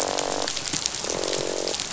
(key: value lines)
label: biophony, croak
recorder: SoundTrap 500